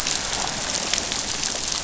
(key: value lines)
label: biophony
recorder: SoundTrap 500